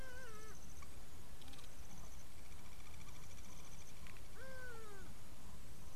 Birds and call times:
Hadada Ibis (Bostrychia hagedash): 0:04.7

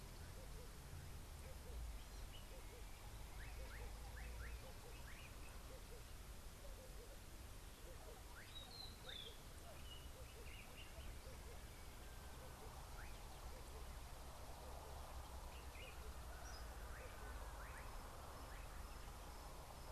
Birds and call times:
Slate-colored Boubou (Laniarius funebris): 0:04.2
White-browed Robin-Chat (Cossypha heuglini): 0:08.8
Meyer's Parrot (Poicephalus meyeri): 0:16.6

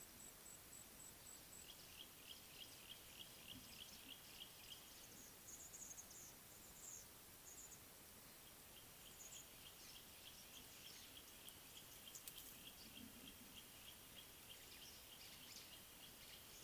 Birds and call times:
Yellow-breasted Apalis (Apalis flavida): 0:03.2
Speckle-fronted Weaver (Sporopipes frontalis): 0:05.7, 0:06.9, 0:09.2

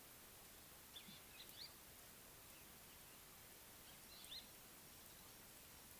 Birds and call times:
Scarlet-chested Sunbird (Chalcomitra senegalensis): 0:04.2

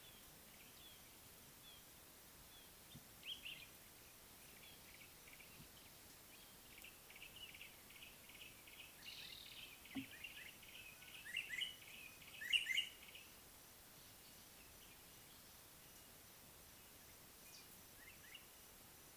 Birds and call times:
Red-fronted Barbet (Tricholaema diademata): 0:00.8
Common Bulbul (Pycnonotus barbatus): 0:03.2
Yellow-breasted Apalis (Apalis flavida): 0:09.4
White-browed Robin-Chat (Cossypha heuglini): 0:11.4

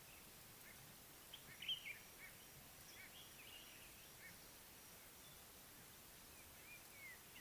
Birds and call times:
Common Bulbul (Pycnonotus barbatus): 0:01.7
White-bellied Go-away-bird (Corythaixoides leucogaster): 0:03.0

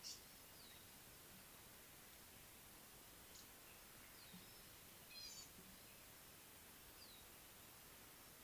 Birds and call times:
Red-faced Crombec (Sylvietta whytii): 0:03.4
Gray-backed Camaroptera (Camaroptera brevicaudata): 0:05.3

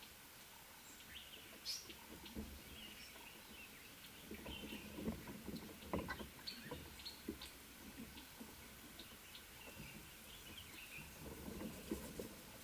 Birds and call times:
African Paradise-Flycatcher (Terpsiphone viridis): 0:01.7

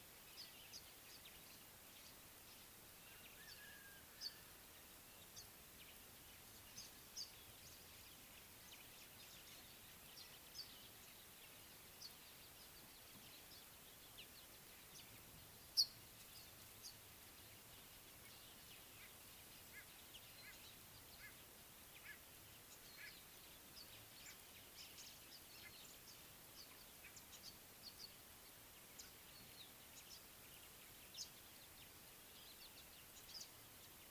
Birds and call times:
African Gray Flycatcher (Bradornis microrhynchus): 0:30.1

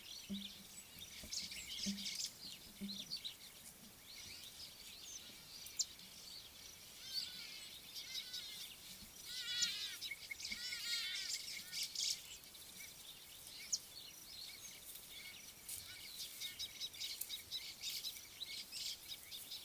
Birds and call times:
White-browed Sparrow-Weaver (Plocepasser mahali): 0:01.9
Hadada Ibis (Bostrychia hagedash): 0:09.6
Scarlet-chested Sunbird (Chalcomitra senegalensis): 0:16.8

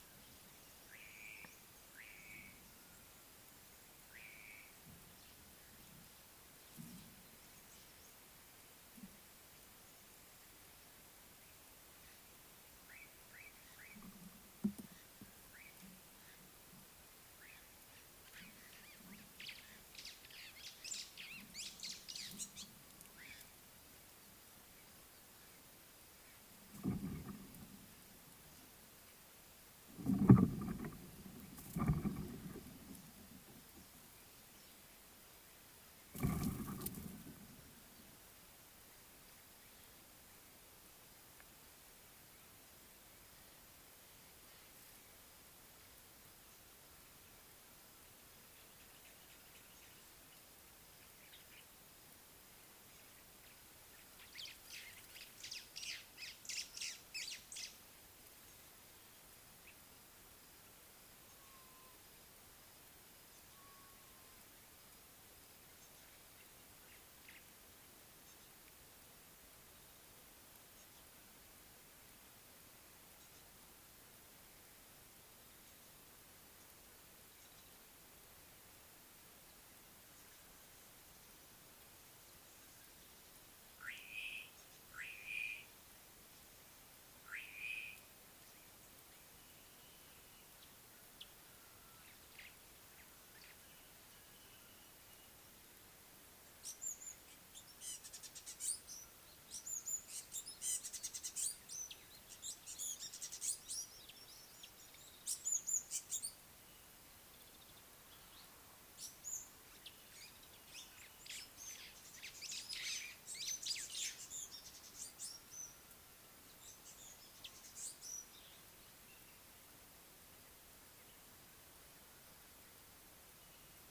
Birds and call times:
Slate-colored Boubou (Laniarius funebris): 0:02.2, 0:13.5, 1:25.3
White-browed Sparrow-Weaver (Plocepasser mahali): 0:21.7, 0:56.3, 1:52.6
African Gray Flycatcher (Bradornis microrhynchus): 1:38.3, 1:41.1, 1:45.7, 1:54.8

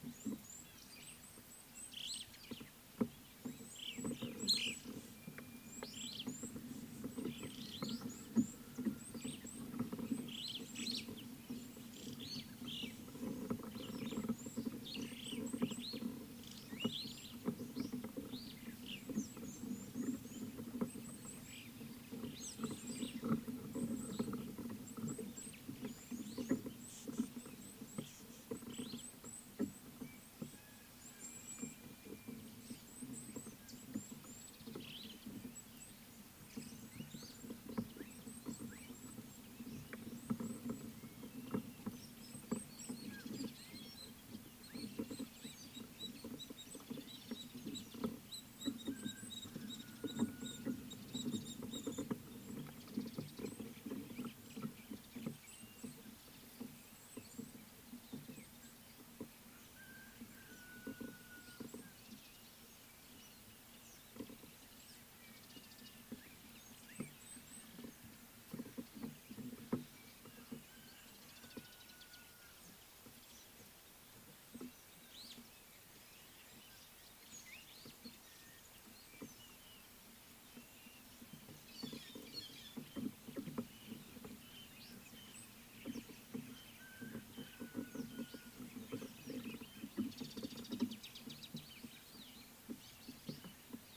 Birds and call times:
Red-cheeked Cordonbleu (Uraeginthus bengalus): 0:01.7, 0:15.4, 0:21.3, 0:25.1, 0:33.1, 0:38.6, 0:42.5, 1:07.3
Superb Starling (Lamprotornis superbus): 0:04.5, 0:10.8
Rufous Chatterer (Argya rubiginosa): 0:42.0, 0:48.3, 0:50.5
White-headed Buffalo-Weaver (Dinemellia dinemelli): 1:22.0

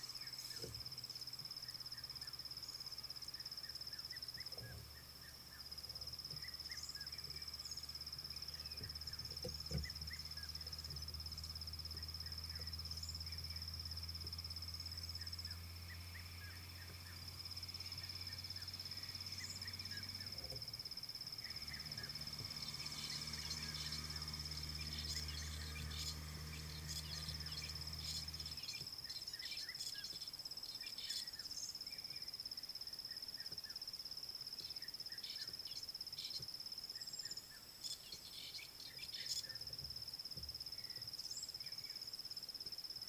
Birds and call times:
Fork-tailed Drongo (Dicrurus adsimilis): 0:28.0, 0:38.5

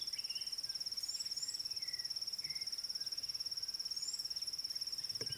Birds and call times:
Red-cheeked Cordonbleu (Uraeginthus bengalus): 0:01.2, 0:04.1

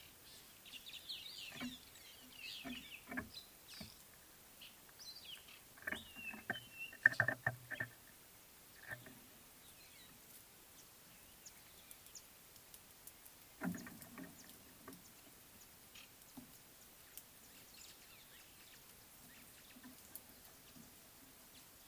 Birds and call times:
White-headed Buffalo-Weaver (Dinemellia dinemelli): 0:01.3

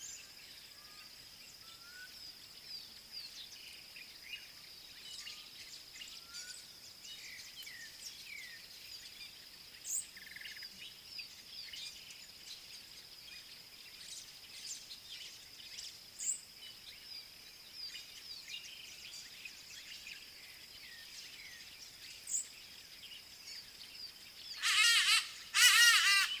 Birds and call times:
African Bare-eyed Thrush (Turdus tephronotus): 0:10.5
Southern Black-Flycatcher (Melaenornis pammelaina): 0:16.3
Hadada Ibis (Bostrychia hagedash): 0:24.9

